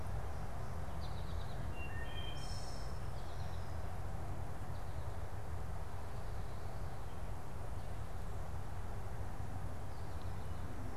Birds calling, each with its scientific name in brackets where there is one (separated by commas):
Wood Thrush (Hylocichla mustelina), American Goldfinch (Spinus tristis)